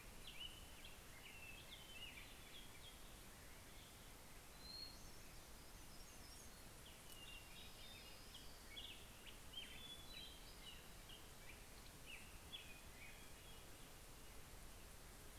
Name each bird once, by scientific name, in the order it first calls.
Pheucticus melanocephalus, Setophaga occidentalis, Leiothlypis celata, Catharus guttatus